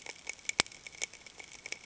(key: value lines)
label: ambient
recorder: HydroMoth